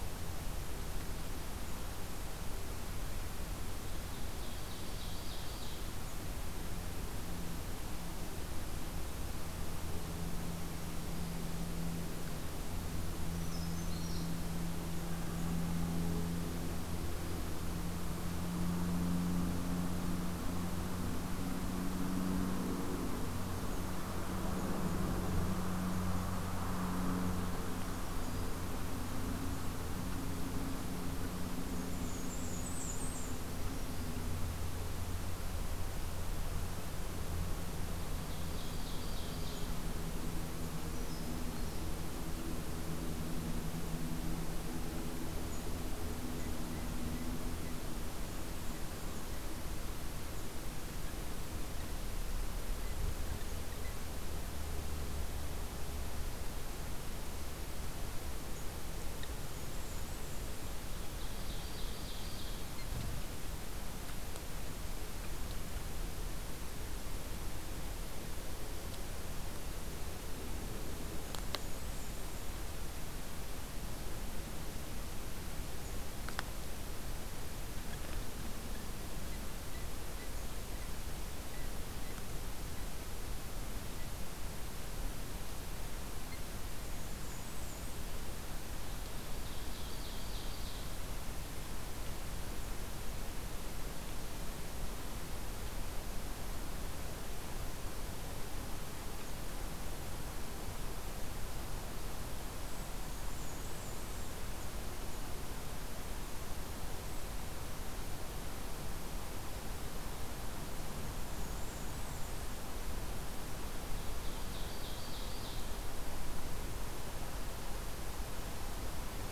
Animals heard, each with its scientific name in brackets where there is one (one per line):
Bay-breasted Warbler (Setophaga castanea)
Ovenbird (Seiurus aurocapilla)
Brown Creeper (Certhia americana)